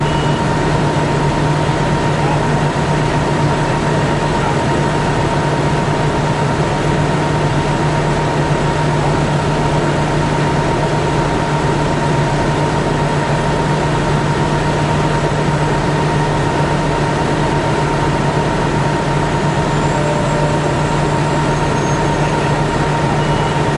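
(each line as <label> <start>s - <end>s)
A bus engine runs loudly and continuously while waiting at a bus stop. 0.0s - 23.8s
A bus starts moving slowly but clearly. 19.5s - 23.8s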